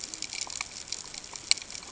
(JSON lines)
{"label": "ambient", "recorder": "HydroMoth"}